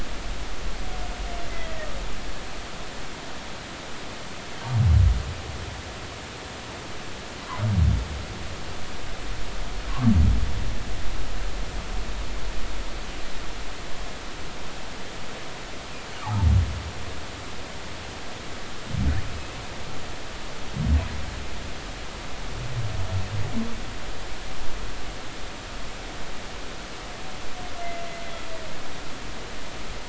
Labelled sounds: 1.5	1.8	humpback whale, 1.9 to 2.1 kHz
16.2	16.5	humpback whale, 0.80 to 1.3 kHz

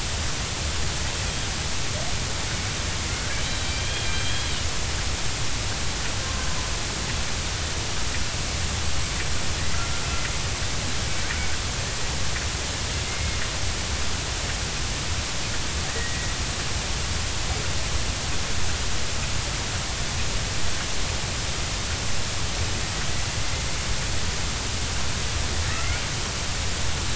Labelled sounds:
3.8	4.5	killer whale, Bigg's (transient), 3.1 to 3.3 kHz
13.0	13.4	killer whale, Bigg's (transient), 2.0 to 2.2 kHz
15.9	16.3	killer whale, Bigg's (transient), 1.8 to 2.0 kHz

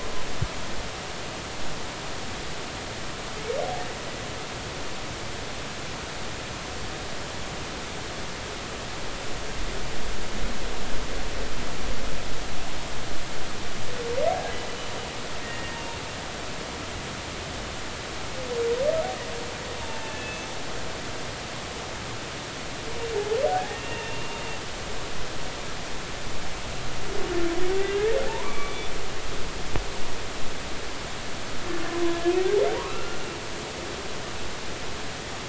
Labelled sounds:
15.4	15.8	humpback whale, 1.8 to 1.9 kHz
19.8	20.5	humpback whale, 0.83 to 2.7 kHz
23.5	24.4	humpback whale, 0.80 to 2.8 kHz
27.8	28.9	humpback whale, 0.83 to 2.4 kHz
32.8	33.2	humpback whale, 1.1 to 2.8 kHz

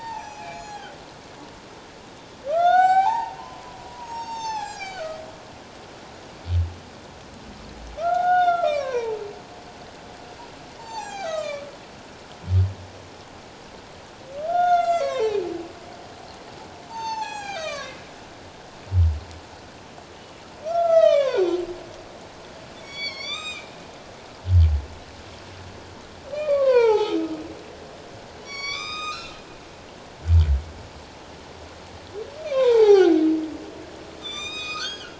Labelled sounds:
0.1	1.0	humpback whale, 1.3 to 6.8 kHz
2.5	5.2	humpback whale, 0.78 to 8.0 kHz
8.0	9.2	humpback whale, 0.78 to 4.4 kHz
10.8	11.7	humpback whale, 0.78 to 7.6 kHz
14.5	15.5	humpback whale, 0.81 to 7.7 kHz
16.9	17.9	humpback whale, 0.78 to 8.0 kHz
20.6	21.5	humpback whale, 0.88 to 6.6 kHz
22.8	23.7	humpback whale, 1.0 to 8.0 kHz
26.3	27.2	humpback whale, 0.78 to 3.9 kHz
28.4	29.4	humpback whale, 1.1 to 7.6 kHz
32.4	33.2	humpback whale, 0.78 to 4.8 kHz
34.2	35.1	humpback whale, 1.1 to 7.6 kHz

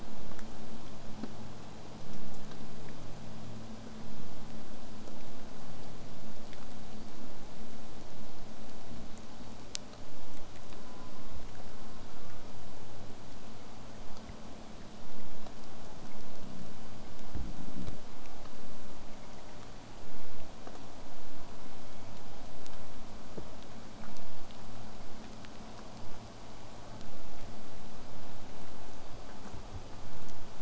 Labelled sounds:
0.0	5.0	vessel noise, 0 to 8.0 kHz
10.7	11.4	killer whale, southern resident, J pod, call S04, 0.43 to 1.7 kHz
11.7	12.4	killer whale, southern resident, J pod, call S04, 0.31 to 1.6 kHz
21.6	22.7	killer whale, southern resident, J pod, call S01, 1.9 to 3.6 kHz

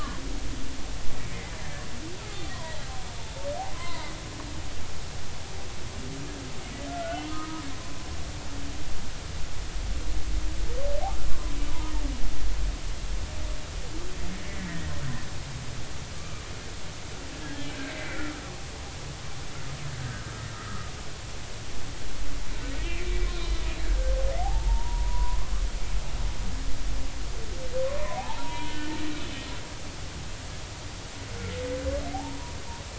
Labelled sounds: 1.3	2.8	humpback whale, 0.80 to 2.2 kHz
3.7	4.1	humpback whale, 0.86 to 2.1 kHz
6.9	7.6	humpback whale, 0.93 to 1.5 kHz
11.3	11.6	humpback whale, 0.96 to 1.2 kHz
17.4	18.3	humpback whale, 1.6 to 3.3 kHz
20.5	20.9	humpback whale, 1.2 to 1.4 kHz
22.8	25.5	humpback whale, 0.80 to 4.1 kHz
28.0	28.9	humpback whale, 0.80 to 3.1 kHz
29.2	29.5	humpback whale, 3.4 to 3.6 kHz
32.1	32.5	humpback whale, 0.80 to 1.1 kHz

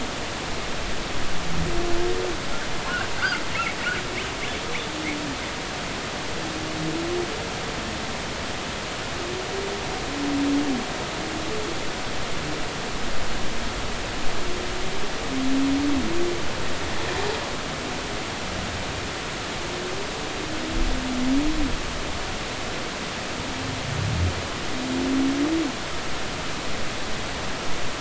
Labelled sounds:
3.2	3.4	humpback whale, 1.3 to 1.7 kHz

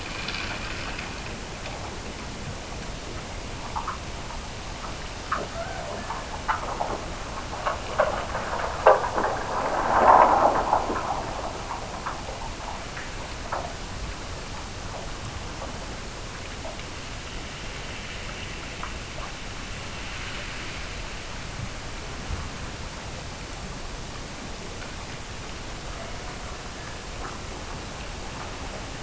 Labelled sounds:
5.5	6.5	killer whale, Bigg's (transient), Gulf of Alaska transient, 0.44 to 1.8 kHz

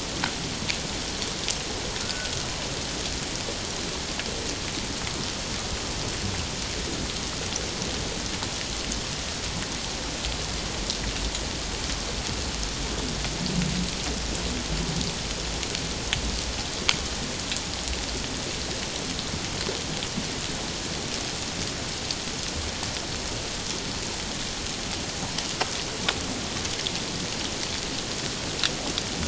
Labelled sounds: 2.0	2.3	humpback whale, 1.3 to 1.6 kHz

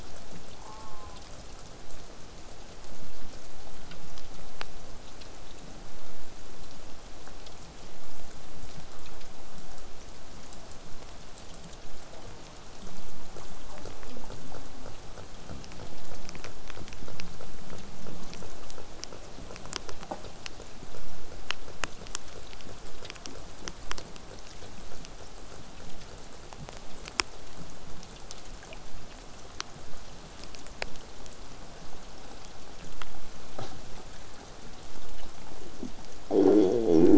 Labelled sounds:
0.6	1.2	killer whale, southern resident, J pod, call S04, 0.50 to 1.4 kHz
2.0	7.0	vessel noise, 0 to 8.0 kHz
12.1	12.6	killer whale, southern resident, J pod, call S04, 0.15 to 1.2 kHz

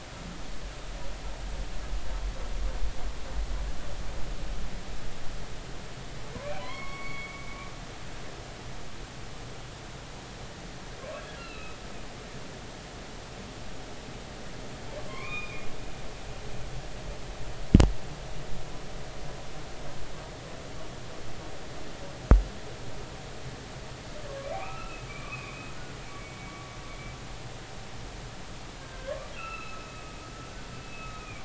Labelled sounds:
6.6	7.5	humpback whale, 0.96 to 4.5 kHz
11.4	11.8	humpback whale, 1.2 to 4.2 kHz
15.1	15.7	humpback whale, 0.99 to 3.8 kHz
24.4	25.7	humpback whale, 1.1 to 2.8 kHz
26.2	26.5	humpback whale, 2.2 to 2.3 kHz
28.8	29.8	humpback whale, 0.99 to 2.8 kHz
30.8	31.4	humpback whale, 1.2 to 2.7 kHz

